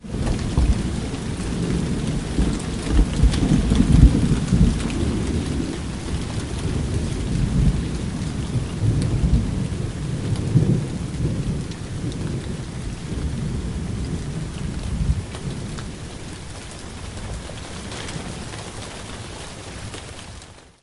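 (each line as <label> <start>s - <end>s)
Thunder rumbles in the background with a distant sound gradually increasing and decreasing. 0.0s - 17.0s
Rain is pouring outside with loud drops falling in a steady pattern. 0.0s - 20.8s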